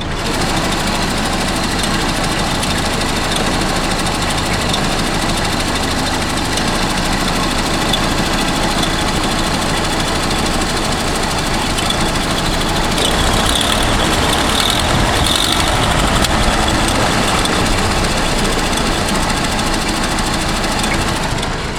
Is the vehicle outside?
yes